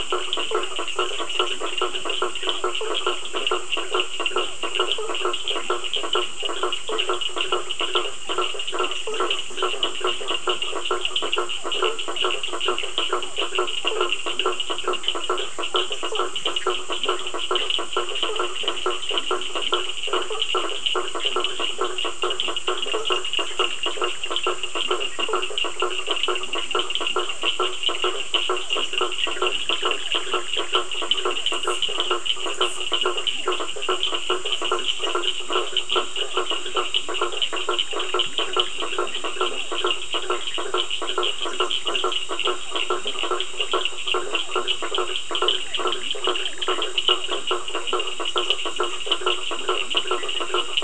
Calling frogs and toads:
Boana faber (Hylidae), Sphaenorhynchus surdus (Hylidae), Leptodactylus latrans (Leptodactylidae), Boana bischoffi (Hylidae), Physalaemus cuvieri (Leptodactylidae)
Atlantic Forest, 9pm

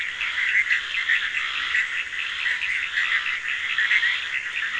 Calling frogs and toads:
Boana bischoffi (Hylidae), Scinax perereca (Hylidae), Sphaenorhynchus surdus (Hylidae)
Brazil, 2:45am

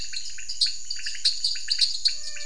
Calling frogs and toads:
Dendropsophus nanus (Hylidae), Leptodactylus podicipinus (Leptodactylidae)
Brazil, 7:15pm

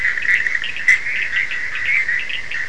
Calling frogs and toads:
Boana bischoffi (Hylidae), Sphaenorhynchus surdus (Hylidae)
Atlantic Forest, ~3am

